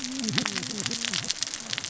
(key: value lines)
label: biophony, cascading saw
recorder: SoundTrap 600 or HydroMoth